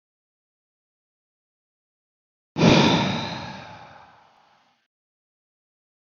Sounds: Sigh